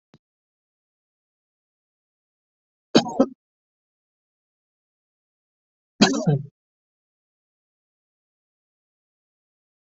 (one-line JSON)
{"expert_labels": [{"quality": "ok", "cough_type": "unknown", "dyspnea": false, "wheezing": false, "stridor": false, "choking": false, "congestion": false, "nothing": true, "diagnosis": "healthy cough", "severity": "pseudocough/healthy cough"}], "age": 23, "gender": "other", "respiratory_condition": true, "fever_muscle_pain": true, "status": "COVID-19"}